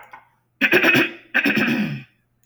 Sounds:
Throat clearing